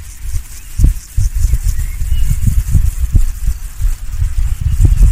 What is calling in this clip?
Pseudochorthippus parallelus, an orthopteran